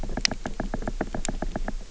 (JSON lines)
{"label": "biophony, knock", "recorder": "SoundTrap 300"}